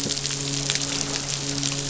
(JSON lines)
{"label": "biophony, midshipman", "recorder": "SoundTrap 500"}